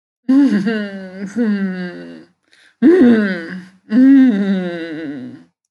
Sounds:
Sniff